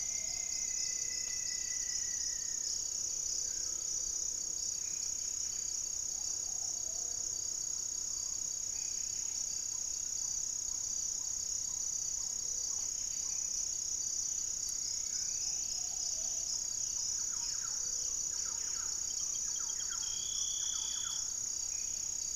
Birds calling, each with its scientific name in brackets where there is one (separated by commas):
unidentified bird, Plumbeous Pigeon (Patagioenas plumbea), Thrush-like Wren (Campylorhynchus turdinus), Black-faced Antthrush (Formicarius analis), Striped Woodcreeper (Xiphorhynchus obsoletus), Black-tailed Trogon (Trogon melanurus), Buff-throated Woodcreeper (Xiphorhynchus guttatus), Buff-breasted Wren (Cantorchilus leucotis), Gray-fronted Dove (Leptotila rufaxilla)